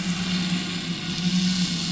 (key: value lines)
label: anthrophony, boat engine
recorder: SoundTrap 500